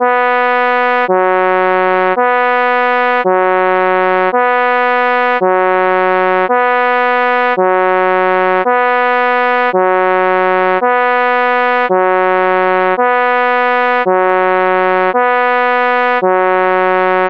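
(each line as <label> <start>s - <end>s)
A police siren is sounding repeatedly and loudly. 0.0s - 17.3s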